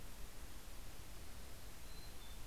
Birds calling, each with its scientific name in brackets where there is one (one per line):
Mountain Chickadee (Poecile gambeli)